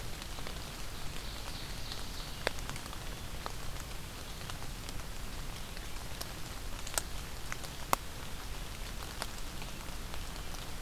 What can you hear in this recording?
Ovenbird